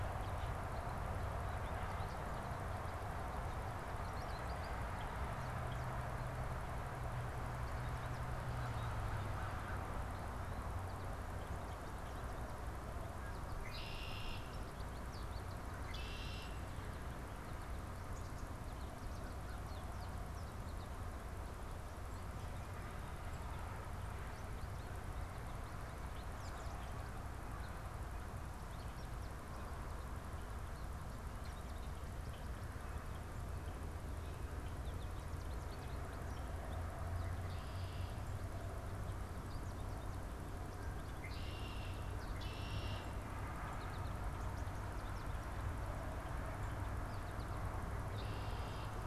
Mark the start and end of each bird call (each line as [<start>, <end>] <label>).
[0.00, 47.90] American Goldfinch (Spinus tristis)
[13.00, 14.50] Red-winged Blackbird (Agelaius phoeniceus)
[15.60, 16.70] Red-winged Blackbird (Agelaius phoeniceus)
[19.00, 19.80] American Crow (Corvus brachyrhynchos)
[37.10, 38.20] Red-winged Blackbird (Agelaius phoeniceus)
[40.70, 43.30] Red-winged Blackbird (Agelaius phoeniceus)
[47.70, 49.00] Red-winged Blackbird (Agelaius phoeniceus)